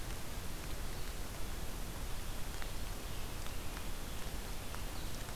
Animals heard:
forest ambience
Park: Marsh-Billings-Rockefeller National Historical Park